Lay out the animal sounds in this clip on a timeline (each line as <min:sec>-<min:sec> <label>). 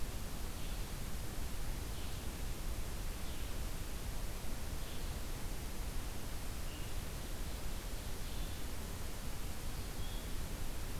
0:00.0-0:10.5 Blue-headed Vireo (Vireo solitarius)
0:07.0-0:08.7 Ovenbird (Seiurus aurocapilla)